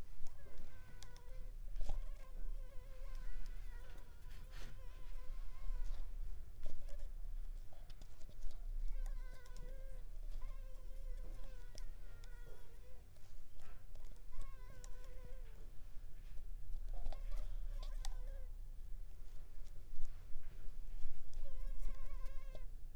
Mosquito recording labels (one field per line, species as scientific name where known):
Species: Culex pipiens complex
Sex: female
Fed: unfed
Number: one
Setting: cup